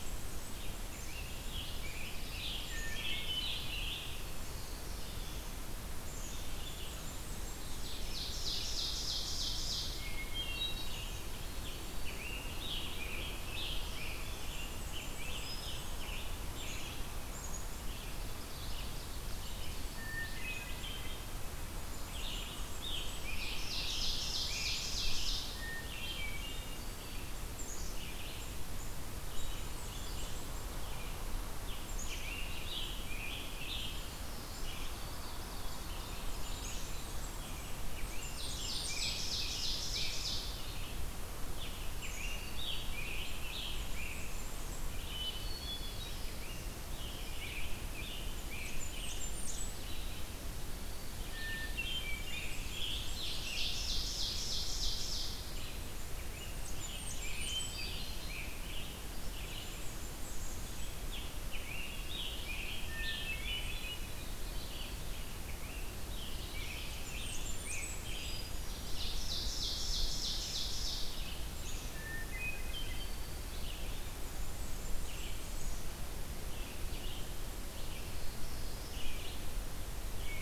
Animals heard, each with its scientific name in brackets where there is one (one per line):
Red-eyed Vireo (Vireo olivaceus)
Hermit Thrush (Catharus guttatus)
Ovenbird (Seiurus aurocapilla)
Black-capped Chickadee (Poecile atricapillus)
Scarlet Tanager (Piranga olivacea)
Black-throated Blue Warbler (Setophaga caerulescens)
Blackburnian Warbler (Setophaga fusca)